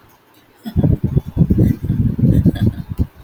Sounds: Laughter